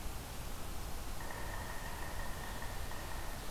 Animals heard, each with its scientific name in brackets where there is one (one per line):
Yellow-bellied Sapsucker (Sphyrapicus varius)